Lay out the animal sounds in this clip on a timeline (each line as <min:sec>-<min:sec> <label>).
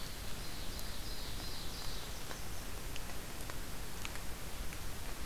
0:00.0-0:02.0 Ovenbird (Seiurus aurocapilla)
0:01.6-0:02.8 Blackburnian Warbler (Setophaga fusca)